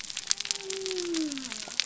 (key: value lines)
label: biophony
recorder: SoundTrap 300